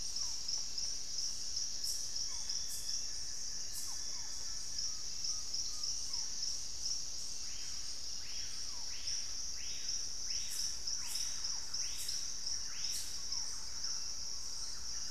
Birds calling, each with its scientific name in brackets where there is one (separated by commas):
Russet-backed Oropendola (Psarocolius angustifrons), Barred Forest-Falcon (Micrastur ruficollis), Thrush-like Wren (Campylorhynchus turdinus), Buff-throated Woodcreeper (Xiphorhynchus guttatus), Collared Trogon (Trogon collaris), Screaming Piha (Lipaugus vociferans)